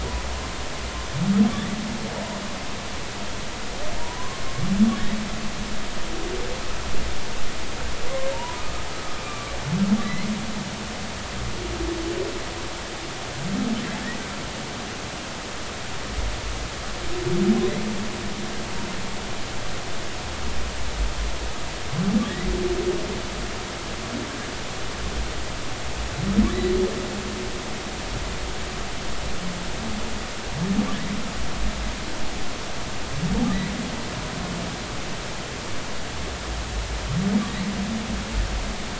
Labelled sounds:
4.0	4.4	humpback whale, 0.90 to 1.1 kHz
8.3	9.6	humpback whale, 0.86 to 2.5 kHz
10.0	10.3	humpback whale, 1.9 to 2.2 kHz

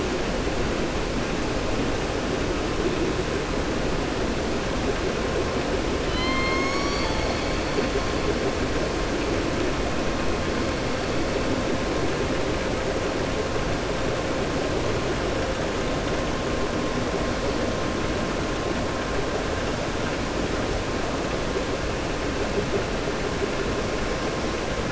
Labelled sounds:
6.0	7.5	killer whale, southern resident, 0.87 to 6.8 kHz

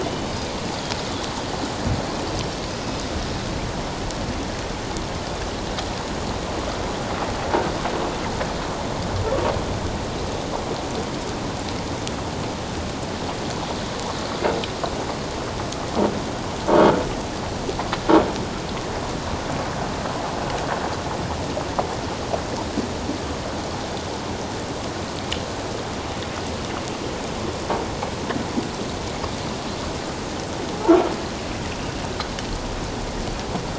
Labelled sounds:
0.0	0.3	Pacific white-sided dolphin, 2.8 to 3.1 kHz

